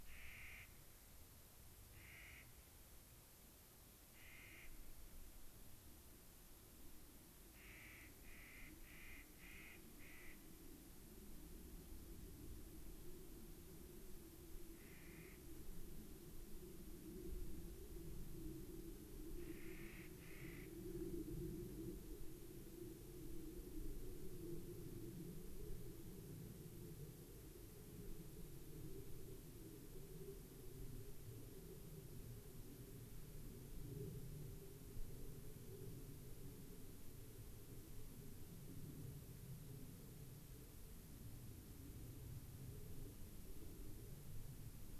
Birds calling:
Clark's Nutcracker (Nucifraga columbiana)

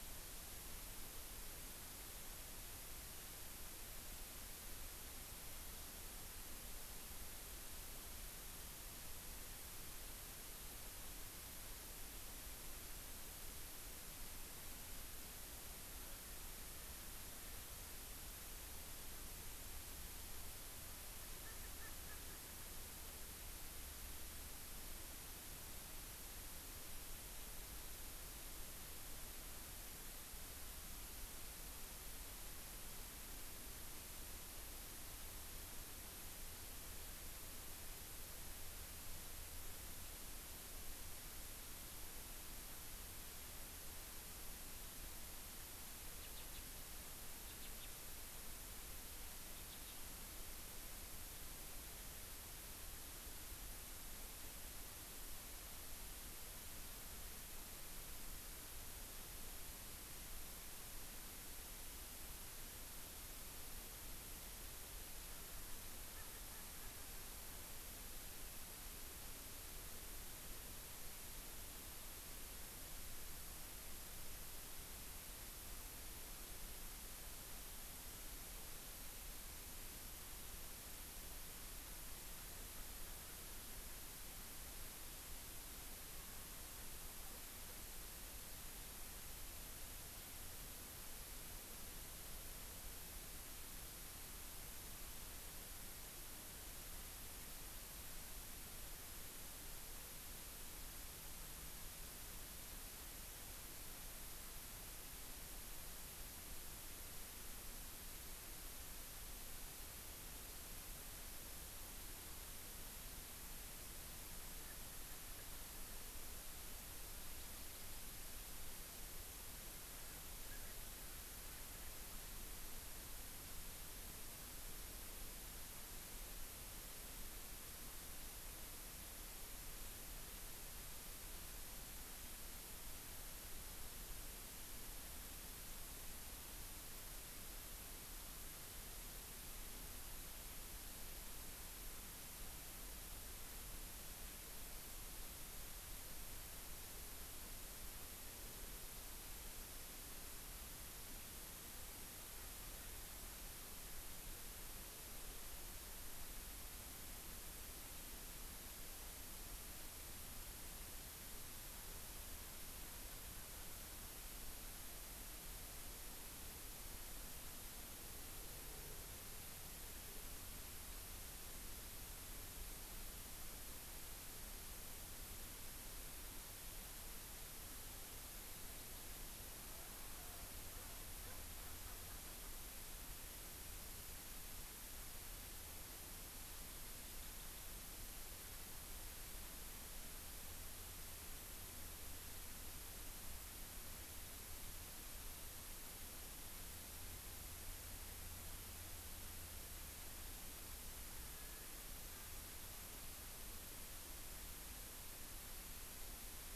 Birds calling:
Erckel's Francolin (Pternistis erckelii)
Eurasian Skylark (Alauda arvensis)

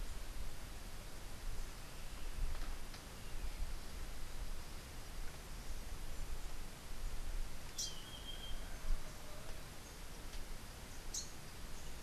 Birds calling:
Rufous-capped Warbler (Basileuterus rufifrons)

